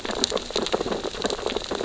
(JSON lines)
{"label": "biophony, sea urchins (Echinidae)", "recorder": "SoundTrap 600 or HydroMoth"}